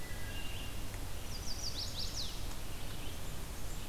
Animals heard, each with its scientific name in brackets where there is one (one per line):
Red-eyed Vireo (Vireo olivaceus)
Chestnut-sided Warbler (Setophaga pensylvanica)
Wood Thrush (Hylocichla mustelina)